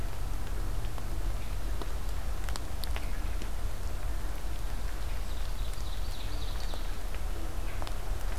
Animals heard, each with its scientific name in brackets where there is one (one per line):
Ovenbird (Seiurus aurocapilla)